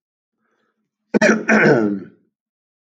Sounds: Throat clearing